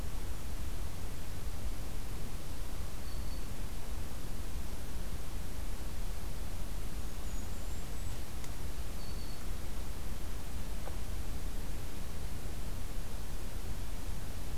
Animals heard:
Black-throated Green Warbler (Setophaga virens)
Golden-crowned Kinglet (Regulus satrapa)

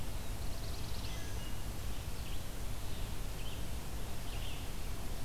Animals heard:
Red-eyed Vireo (Vireo olivaceus)
Wood Thrush (Hylocichla mustelina)
Black-throated Blue Warbler (Setophaga caerulescens)

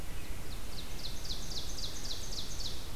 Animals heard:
Ovenbird (Seiurus aurocapilla)

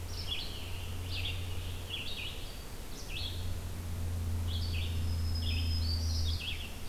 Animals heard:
Black-throated Green Warbler (Setophaga virens)
Red-eyed Vireo (Vireo olivaceus)
Scarlet Tanager (Piranga olivacea)

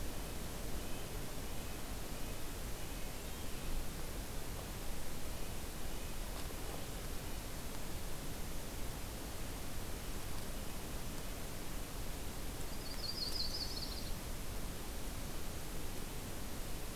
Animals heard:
Red-breasted Nuthatch (Sitta canadensis)
Yellow-rumped Warbler (Setophaga coronata)

